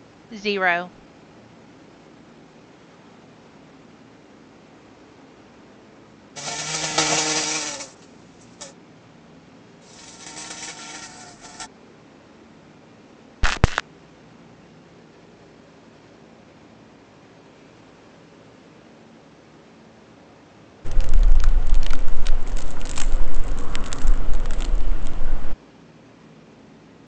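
First, someone says "zero". Afterwards, an insect can be heard. Later, crackling is heard. Next, there is crackling. An unchanging background noise runs about 20 dB below the sounds.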